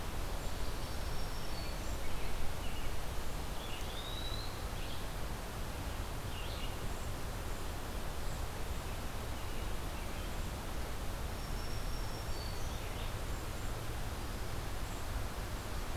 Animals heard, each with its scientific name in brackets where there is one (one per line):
Eastern Wood-Pewee (Contopus virens)
Red-eyed Vireo (Vireo olivaceus)
Black-throated Green Warbler (Setophaga virens)